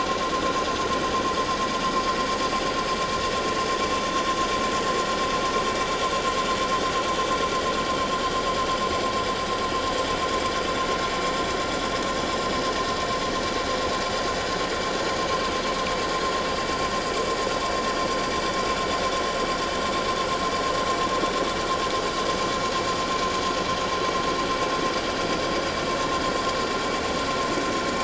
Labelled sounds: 15.3	15.6	vessel noise, 7.7 to 7.8 kHz

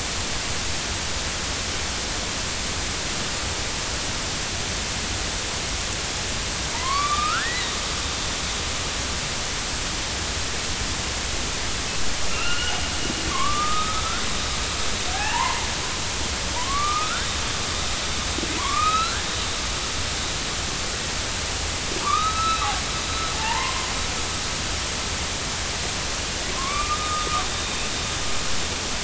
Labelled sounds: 6.7	7.7	killer whale, northern resident, A clan, AB subclan, 0.86 to 4.1 kHz
12.3	12.8	killer whale, northern resident, A clan, AB subclan, 1.2 to 3.0 kHz
13.3	14.2	killer whale, northern resident, A clan, AB subclan, 0.99 to 3.8 kHz
15.1	15.7	killer whale, northern resident, A clan, AB subclan, 0.80 to 2.1 kHz
16.5	17.3	killer whale, northern resident, A clan, AB subclan, 0.90 to 2.6 kHz
18.6	19.2	killer whale, northern resident, A clan, AB subclan, 0.90 to 4.3 kHz
22.0	23.9	killer whale, northern resident, A clan, AB subclan, 0.80 to 3.9 kHz
26.5	27.3	killer whale, northern resident, A clan, AB subclan, 0.96 to 3.7 kHz

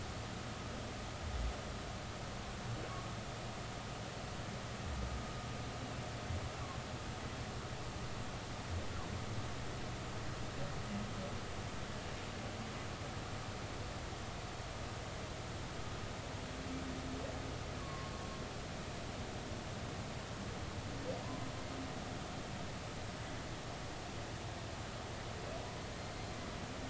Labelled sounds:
17.8	18.1	humpback whale, 0.96 to 1.2 kHz

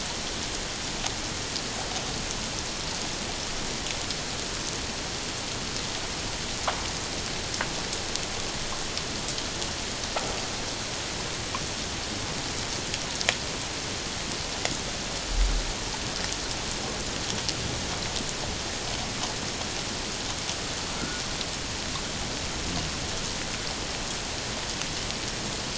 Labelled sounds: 21.0	21.2	humpback whale, 1.3 to 1.5 kHz

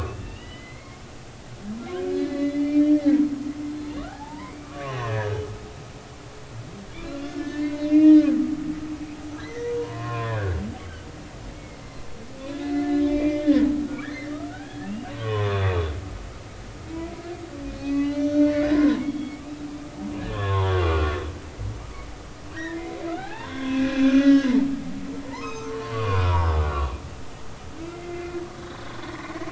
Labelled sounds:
2.1	2.9	humpback whale, 1.6 to 4.4 kHz
4.0	5.4	humpback whale, 0.80 to 6.0 kHz
7.3	8.3	humpback whale, 1.7 to 4.5 kHz
9.4	11.1	humpback whale, 0.93 to 3.2 kHz
11.5	11.8	humpback whale, 2.1 to 2.3 kHz
12.4	15.7	humpback whale, 0.93 to 4.1 kHz
17.7	19.5	humpback whale, 0.83 to 6.0 kHz
20.2	21.2	humpback whale, 0.83 to 3.5 kHz
22.5	26.9	humpback whale, 0.80 to 6.4 kHz
27.9	29.5	humpback whale, 1.8 to 2.2 kHz

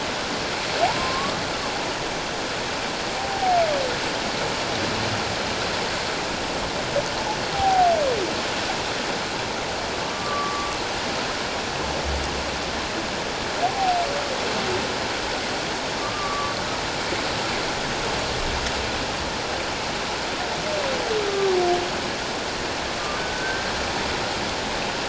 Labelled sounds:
0.8	1.4	humpback whale, 0.78 to 1.3 kHz
3.2	3.6	humpback whale, 0.78 to 0.84 kHz
7.5	7.9	humpback whale, 0.78 to 0.84 kHz
10.0	10.8	humpback whale, 1.1 to 1.2 kHz
16.0	16.5	humpback whale, 1.0 to 1.2 kHz
21.3	21.6	humpback whale, 1.1 to 1.2 kHz
23.2	23.7	humpback whale, 1.5 to 1.6 kHz

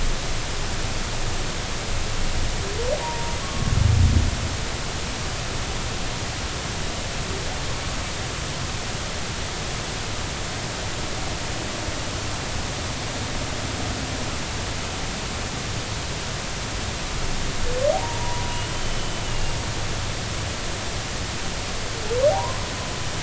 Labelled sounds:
3.0	3.7	humpback whale, 0.86 to 1.2 kHz
17.9	19.5	humpback whale, 0.80 to 3.0 kHz
22.3	22.6	humpback whale, 0.80 to 1.1 kHz

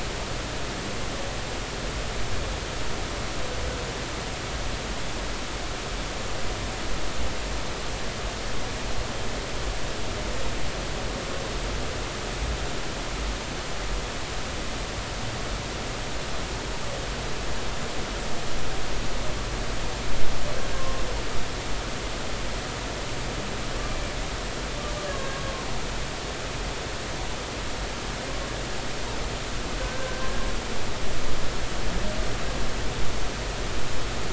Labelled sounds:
20.7	21.0	humpback whale, 1.0 to 1.1 kHz
25.1	25.5	humpback whale, 1.0 to 1.2 kHz
29.8	30.3	humpback whale, 1.5 to 1.6 kHz

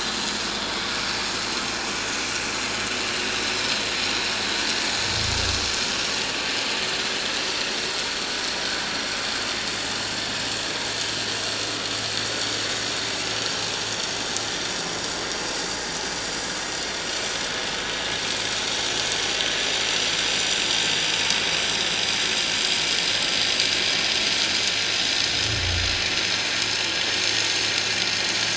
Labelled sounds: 0.6	0.9	vessel noise, 3.3 to 3.5 kHz
3.0	3.4	vessel noise, 2.7 to 2.9 kHz

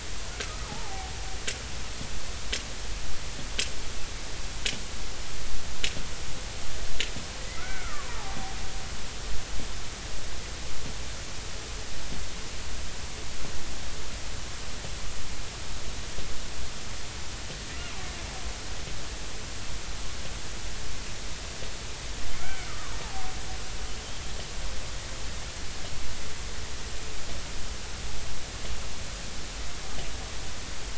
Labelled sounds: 0.4	1.1	killer whale, Bigg's (transient), 0.80 to 1.4 kHz
7.6	8.2	killer whale, Bigg's (transient), 0.93 to 2.4 kHz
17.8	18.0	killer whale, Bigg's (transient), 2.6 to 2.9 kHz
22.3	22.9	killer whale, Bigg's (transient), 1.0 to 2.4 kHz

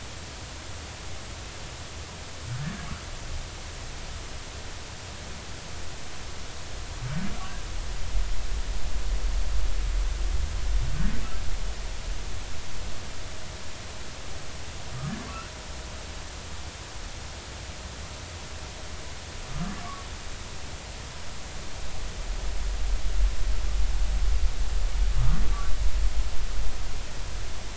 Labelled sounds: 19.5	19.8	humpback whale, 1.1 to 1.2 kHz

